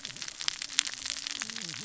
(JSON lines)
{"label": "biophony, cascading saw", "recorder": "SoundTrap 600 or HydroMoth"}